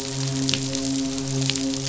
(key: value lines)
label: biophony, midshipman
recorder: SoundTrap 500